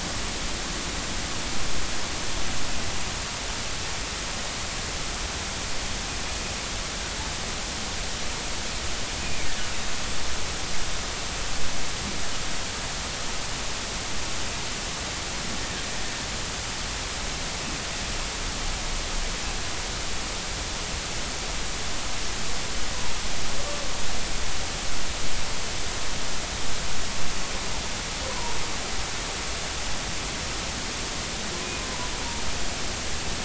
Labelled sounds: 9.2	9.5	humpback whale, 2.2 to 2.6 kHz
28.3	28.6	humpback whale, 0.90 to 1.1 kHz

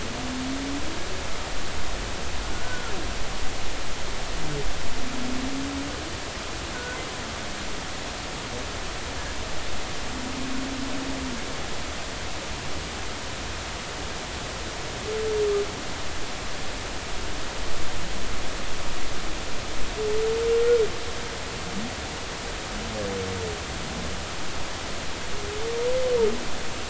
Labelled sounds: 2.4	2.9	humpback whale, 1.3 to 1.6 kHz
6.7	7.0	humpback whale, 1.4 to 1.5 kHz

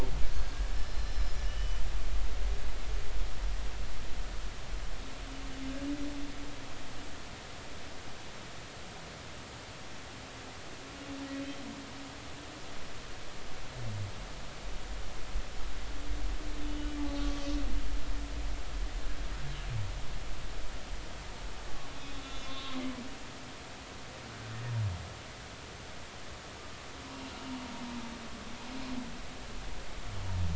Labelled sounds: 0.3	1.8	humpback whale, 2.9 to 7.0 kHz
16.7	17.3	humpback whale, 2.9 to 4.1 kHz
22.1	22.8	humpback whale, 0.96 to 3.9 kHz
27.0	27.3	humpback whale, 0.90 to 1.1 kHz

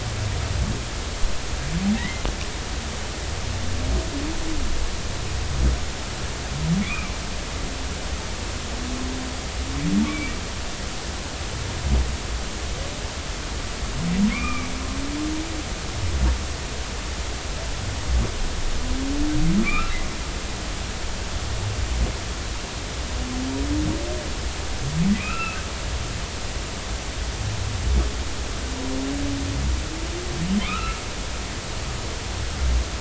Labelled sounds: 2.0	2.2	humpback whale, 1.7 to 2.2 kHz
6.8	7.1	humpback whale, 0.99 to 2.6 kHz
10.0	10.3	humpback whale, 2.2 to 2.4 kHz
14.3	14.7	humpback whale, 1.0 to 2.5 kHz
19.6	20.0	humpback whale, 1.1 to 2.8 kHz
25.2	25.6	humpback whale, 1.2 to 2.8 kHz
30.6	31.0	humpback whale, 1.2 to 2.8 kHz

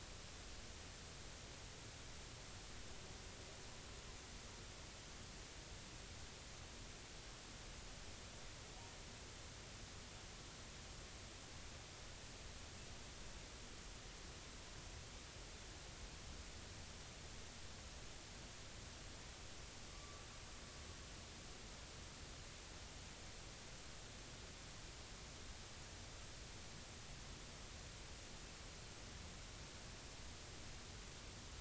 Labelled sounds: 19.9	20.3	humpback whale, 1.1 to 1.2 kHz

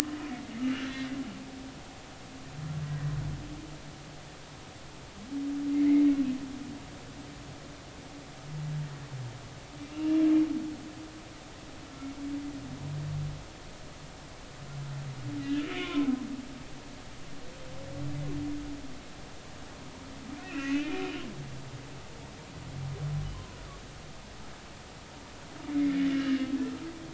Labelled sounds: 0.0	0.3	humpback whale, 1.0 to 1.4 kHz
2.9	3.1	humpback whale, 1.9 to 2.0 kHz
9.9	10.2	humpback whale, 2.6 to 3.0 kHz
11.9	12.1	humpback whale, 1.3 to 1.4 kHz
15.4	16.1	humpback whale, 0.99 to 3.2 kHz
20.4	21.0	humpback whale, 1.3 to 6.6 kHz
23.3	23.6	humpback whale, 0.93 to 1.1 kHz
25.7	26.4	humpback whale, 1.6 to 3.0 kHz

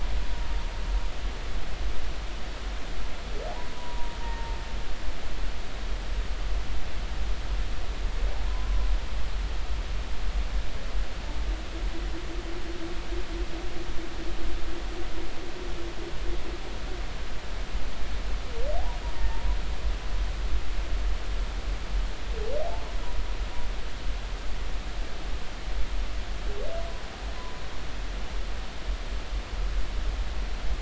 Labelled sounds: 3.5	4.5	humpback whale, 0.80 to 1.9 kHz
5.2	5.6	humpback whale, 0.86 to 0.96 kHz
8.5	8.7	humpback whale, 0.93 to 1.1 kHz
19.1	19.4	humpback whale, 1.8 to 1.9 kHz
22.6	22.9	humpback whale, 0.80 to 0.93 kHz

